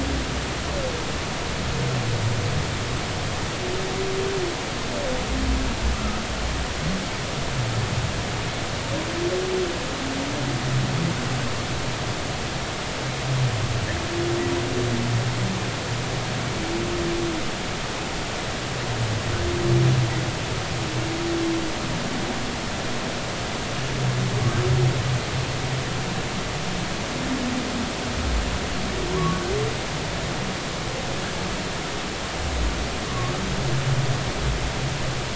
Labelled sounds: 29.1	29.4	humpback whale, 0.90 to 1.2 kHz
33.1	33.3	humpback whale, 1.0 to 1.2 kHz

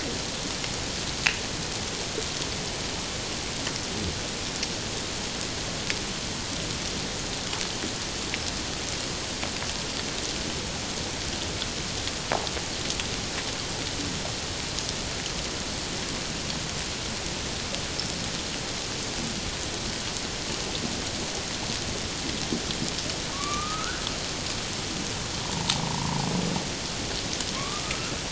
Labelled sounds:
25.4	26.3	humpback whale, 0.78 to 1.2 kHz

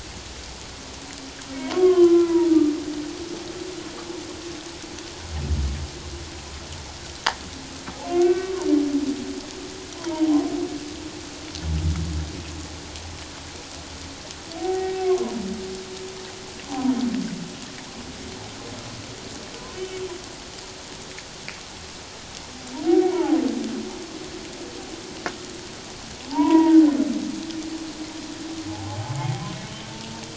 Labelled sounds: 1.6	2.5	humpback whale, 0.88 to 3.4 kHz
8.1	8.7	humpback whale, 0.88 to 2.7 kHz
10.0	10.5	humpback whale, 0.78 to 1.1 kHz
14.6	15.4	humpback whale, 0.78 to 1.9 kHz
16.7	16.9	humpback whale, 0.78 to 1.1 kHz
22.9	23.4	humpback whale, 0.78 to 2.3 kHz
26.3	26.8	humpback whale, 0.78 to 2.0 kHz
28.7	29.5	humpback whale, 0.78 to 2.3 kHz

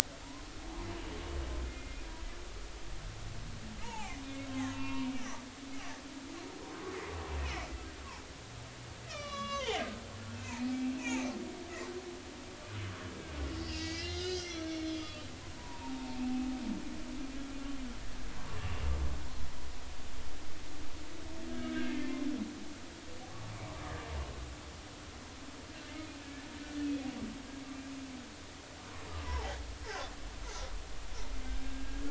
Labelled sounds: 1.7	2.0	humpback whale, 2.0 to 2.2 kHz
3.8	5.1	humpback whale, 0.80 to 3.8 kHz
6.0	6.3	humpback whale, 2.2 to 2.4 kHz
7.4	7.7	humpback whale, 1.9 to 2.7 kHz
9.1	9.8	humpback whale, 0.80 to 6.3 kHz
10.3	11.3	humpback whale, 2.2 to 2.7 kHz
12.0	12.3	humpback whale, 6.0 to 6.8 kHz
13.5	16.2	humpback whale, 0.80 to 6.0 kHz
18.5	18.8	humpback whale, 2.7 to 2.8 kHz
21.5	22.2	humpback whale, 1.5 to 2.3 kHz
26.8	27.1	humpback whale, 2.4 to 2.7 kHz
29.2	29.6	humpback whale, 0.80 to 1.1 kHz
31.6	32.0	humpback whale, 1.6 to 1.7 kHz

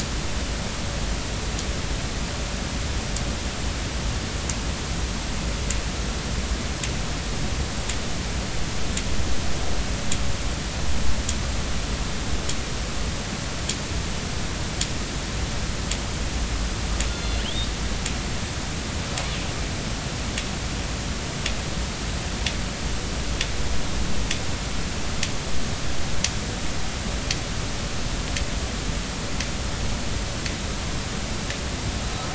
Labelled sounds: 17.1	17.7	killer whale, northern resident, A clan, AB subclan, call N07iii, 2.8 to 4.3 kHz

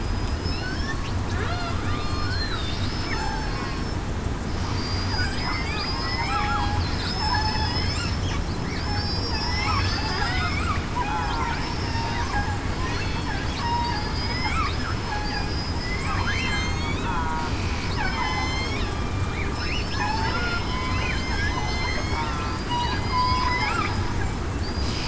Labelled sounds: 0.0	0.7	killer whale, southern resident, 4.9 to 5.1 kHz
1.8	2.3	killer whale, southern resident, 1.1 to 1.2 kHz
2.9	3.8	killer whale, southern resident, 1.1 to 5.3 kHz
4.7	5.7	killer whale, southern resident, 4.6 to 5.2 kHz
6.0	6.3	killer whale, southern resident, 1.9 to 2.4 kHz
7.2	7.7	killer whale, southern resident, 5.1 to 5.3 kHz
8.9	9.9	killer whale, southern resident, 4.5 to 5.5 kHz
10.2	10.6	killer whale, southern resident, 1.9 to 3.8 kHz
11.0	12.1	killer whale, southern resident, 0.75 to 5.5 kHz
12.9	13.9	killer whale, southern resident, 3.7 to 4.5 kHz
15.1	15.4	killer whale, southern resident, 1.6 to 1.9 kHz
15.7	17.4	killer whale, southern resident, 1.2 to 6.5 kHz
17.9	18.5	killer whale, southern resident, 0.89 to 5.2 kHz
18.9	23.5	killer whale, southern resident, 2.0 to 6.5 kHz
24.6	24.9	killer whale, southern resident, 4.4 to 4.9 kHz

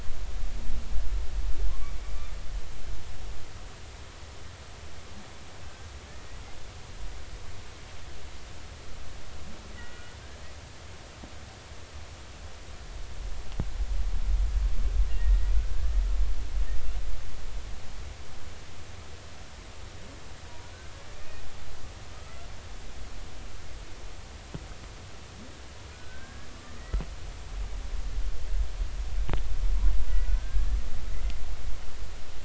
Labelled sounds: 1.7	2.3	humpback whale, 0.99 to 2.4 kHz
9.7	10.1	humpback whale, 1.4 to 2.0 kHz
15.1	15.9	humpback whale, 1.4 to 2.0 kHz
22.1	22.5	humpback whale, 1.2 to 1.4 kHz
25.9	27.0	humpback whale, 1.4 to 2.0 kHz
30.3	30.8	humpback whale, 1.4 to 1.9 kHz

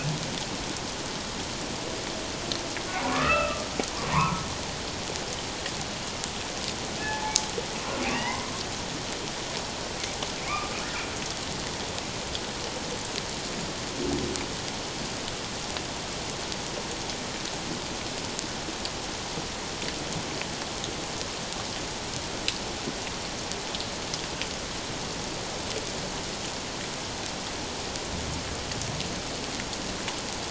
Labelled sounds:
3.0	4.5	humpback whale, 0.88 to 2.8 kHz
7.0	7.4	humpback whale, 0.81 to 0.91 kHz
8.0	8.5	humpback whale, 0.81 to 3.0 kHz
10.4	10.8	humpback whale, 1.0 to 2.5 kHz

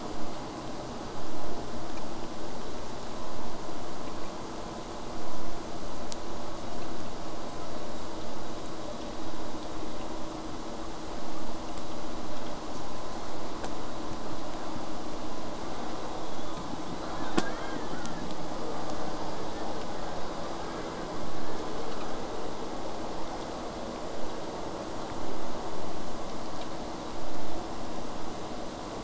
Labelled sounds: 16.1	16.7	killer whale, southern resident, J pod, whistle, 3.2 to 3.8 kHz
16.8	18.2	killer whale, southern resident, J pod, 1.0 to 8.0 kHz

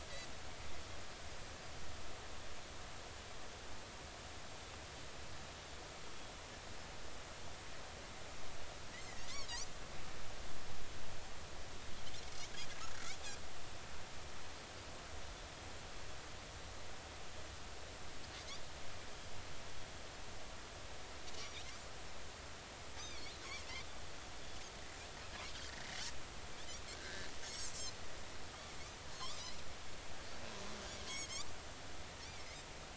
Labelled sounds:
12.9	13.2	Pacific white-sided dolphin, 1.3 to 1.7 kHz
21.4	21.7	Pacific white-sided dolphin, 2.1 to 2.6 kHz
22.9	23.2	Pacific white-sided dolphin, 5.8 to 6.3 kHz
26.9	27.7	Pacific white-sided dolphin, 1.5 to 6.8 kHz
29.1	29.6	Pacific white-sided dolphin, 0.96 to 4.3 kHz

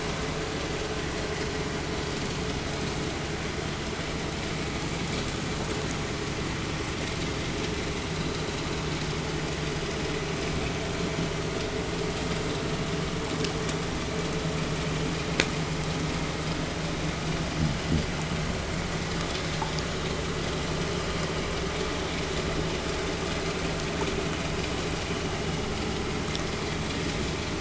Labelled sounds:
17.2	18.4	fish, 0 to 0.51 kHz

